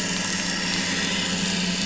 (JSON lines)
{"label": "anthrophony, boat engine", "recorder": "SoundTrap 500"}